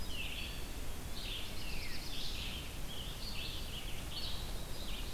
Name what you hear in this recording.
Red-eyed Vireo, Black-throated Blue Warbler, Veery, Scarlet Tanager